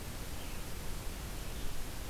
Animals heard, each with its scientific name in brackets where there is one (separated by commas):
Red-eyed Vireo (Vireo olivaceus)